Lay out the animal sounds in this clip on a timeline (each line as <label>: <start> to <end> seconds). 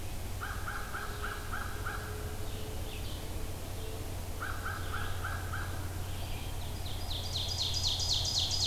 Red-eyed Vireo (Vireo olivaceus): 0.0 to 8.7 seconds
American Crow (Corvus brachyrhynchos): 0.4 to 2.2 seconds
American Crow (Corvus brachyrhynchos): 4.3 to 5.7 seconds
Ovenbird (Seiurus aurocapilla): 6.5 to 8.7 seconds